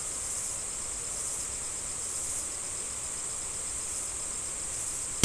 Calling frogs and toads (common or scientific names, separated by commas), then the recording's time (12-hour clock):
none
6:30pm